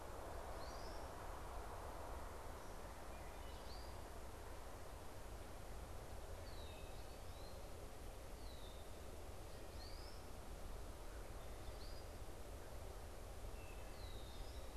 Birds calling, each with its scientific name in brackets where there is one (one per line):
Wood Thrush (Hylocichla mustelina)
unidentified bird
Red-winged Blackbird (Agelaius phoeniceus)